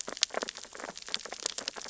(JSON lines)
{"label": "biophony, sea urchins (Echinidae)", "recorder": "SoundTrap 600 or HydroMoth"}